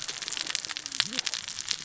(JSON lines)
{"label": "biophony, cascading saw", "recorder": "SoundTrap 600 or HydroMoth"}